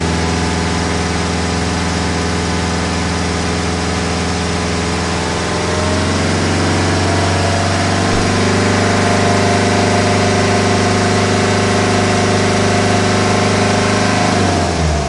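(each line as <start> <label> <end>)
0.0 A motor hums loudly in a steady pattern. 5.0
5.0 A motor accelerates loudly. 14.4
14.4 A motor is slowing down. 15.1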